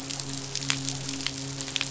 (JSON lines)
{"label": "biophony, midshipman", "recorder": "SoundTrap 500"}